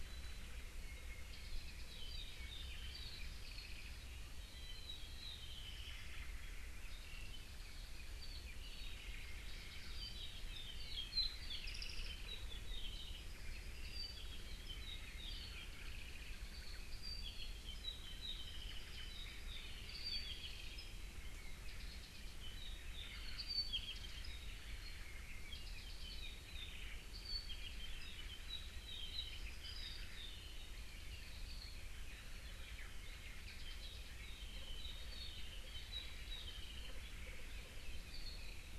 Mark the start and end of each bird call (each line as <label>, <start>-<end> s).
Apapane (Himatione sanguinea), 0.0-7.4 s
Apapane (Himatione sanguinea), 8.2-19.6 s
Apapane (Himatione sanguinea), 19.9-31.9 s
Omao (Myadestes obscurus), 32.6-33.5 s
Apapane (Himatione sanguinea), 33.5-37.1 s
Apapane (Himatione sanguinea), 37.8-38.7 s